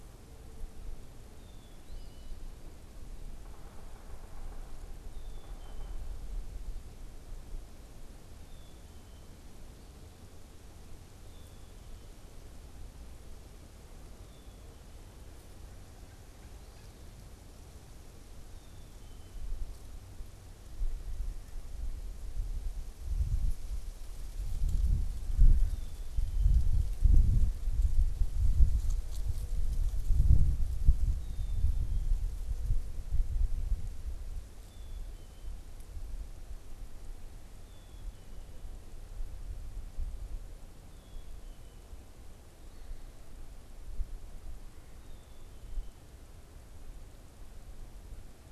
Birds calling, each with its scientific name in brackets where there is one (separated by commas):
Yellow-bellied Sapsucker (Sphyrapicus varius), Eastern Phoebe (Sayornis phoebe), Black-capped Chickadee (Poecile atricapillus)